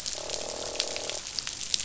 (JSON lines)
{"label": "biophony, croak", "recorder": "SoundTrap 500"}